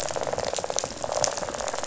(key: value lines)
label: biophony, rattle
recorder: SoundTrap 500